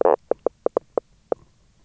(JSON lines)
{"label": "biophony, knock croak", "recorder": "SoundTrap 300"}